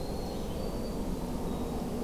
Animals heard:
Eastern Wood-Pewee (Contopus virens), Winter Wren (Troglodytes hiemalis)

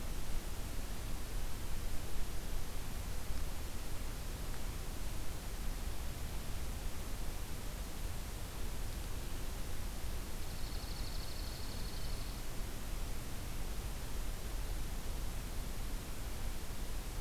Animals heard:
Dark-eyed Junco (Junco hyemalis)

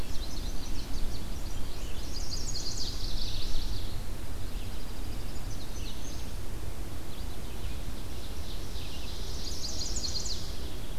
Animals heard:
Indigo Bunting (Passerina cyanea), Ovenbird (Seiurus aurocapilla), Chipping Sparrow (Spizella passerina), Chestnut-sided Warbler (Setophaga pensylvanica), Red-eyed Vireo (Vireo olivaceus)

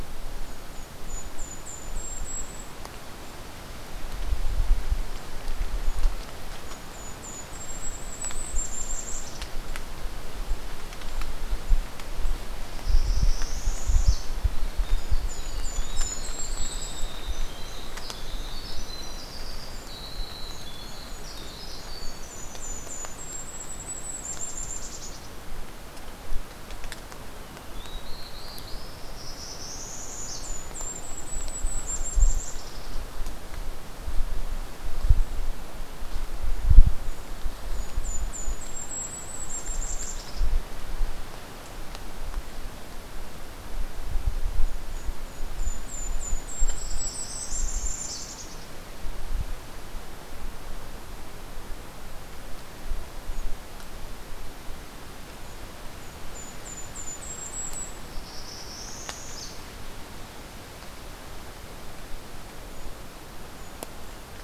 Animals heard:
Black-throated Blue Warbler (Setophaga caerulescens), Winter Wren (Troglodytes hiemalis), Golden-crowned Kinglet (Regulus satrapa), Northern Parula (Setophaga americana)

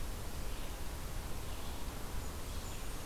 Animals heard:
Blackburnian Warbler (Setophaga fusca), Red-eyed Vireo (Vireo olivaceus)

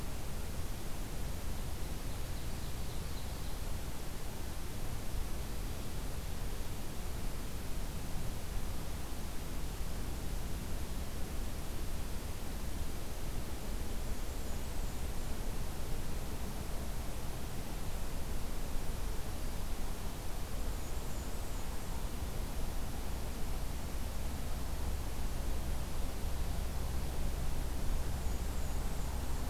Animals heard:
Blackburnian Warbler (Setophaga fusca), Ovenbird (Seiurus aurocapilla)

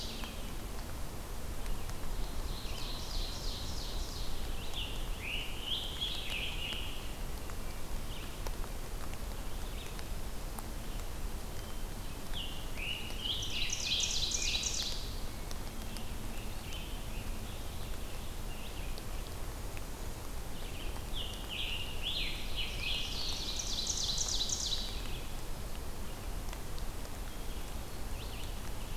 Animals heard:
Ovenbird (Seiurus aurocapilla), Red-eyed Vireo (Vireo olivaceus), Scarlet Tanager (Piranga olivacea)

